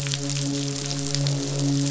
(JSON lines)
{"label": "biophony, midshipman", "recorder": "SoundTrap 500"}
{"label": "biophony, croak", "recorder": "SoundTrap 500"}